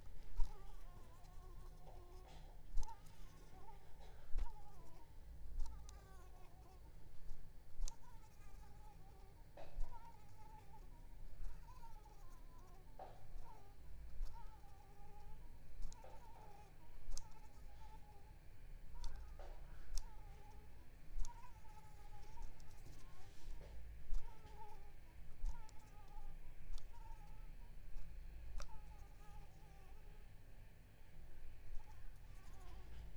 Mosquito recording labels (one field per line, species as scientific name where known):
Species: Anopheles arabiensis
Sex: female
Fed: unfed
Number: one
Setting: cup